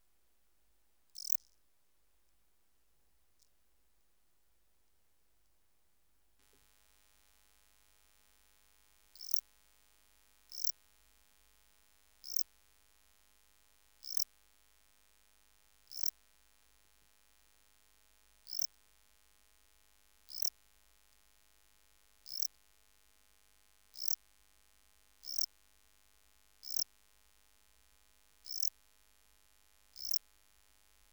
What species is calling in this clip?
Melanogryllus desertus